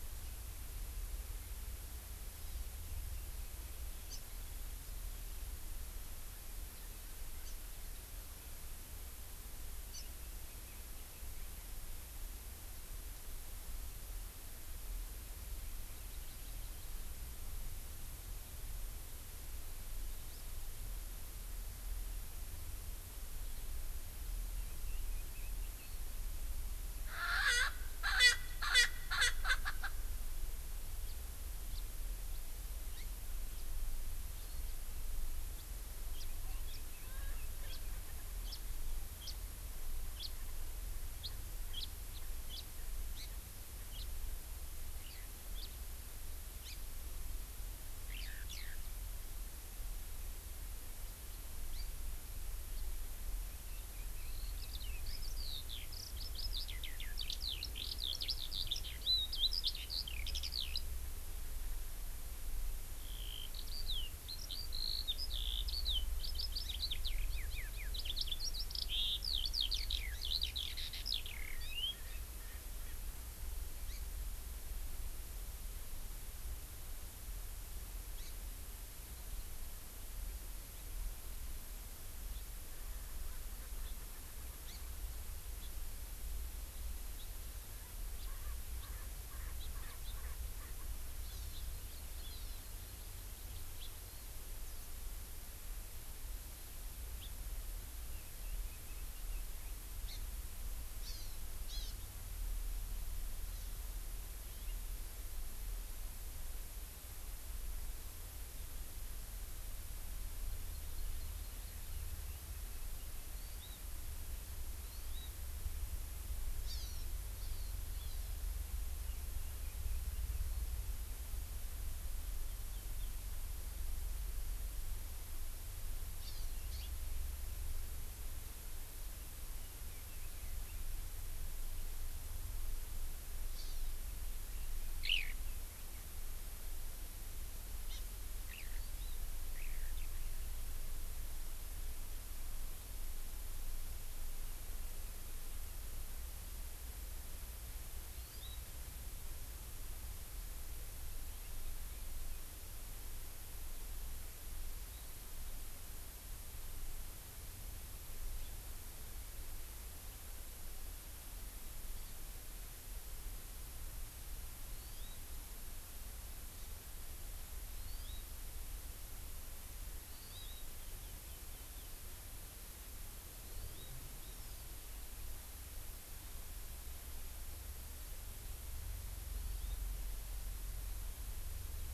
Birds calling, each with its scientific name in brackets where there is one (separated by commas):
Red-billed Leiothrix (Leiothrix lutea), House Finch (Haemorhous mexicanus), Erckel's Francolin (Pternistis erckelii), Eurasian Skylark (Alauda arvensis), Hawaii Amakihi (Chlorodrepanis virens)